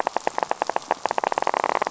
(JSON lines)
{"label": "biophony", "recorder": "SoundTrap 500"}